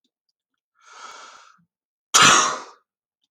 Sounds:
Sneeze